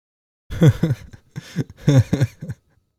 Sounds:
Laughter